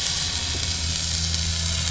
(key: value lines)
label: anthrophony, boat engine
recorder: SoundTrap 500